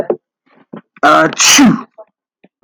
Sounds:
Sneeze